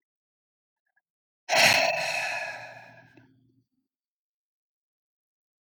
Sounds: Sigh